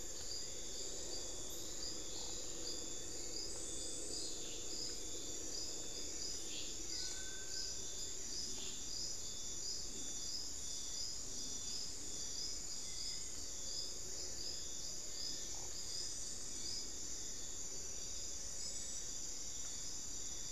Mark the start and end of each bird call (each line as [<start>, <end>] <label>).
[6.78, 7.88] Little Tinamou (Crypturellus soui)
[14.98, 15.58] Cinereous Tinamou (Crypturellus cinereus)